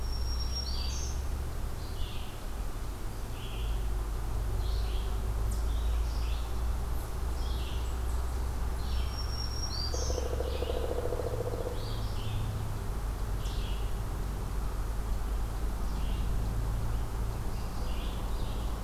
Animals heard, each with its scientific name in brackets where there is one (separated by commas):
Black-throated Green Warbler (Setophaga virens), Pileated Woodpecker (Dryocopus pileatus), Red-eyed Vireo (Vireo olivaceus)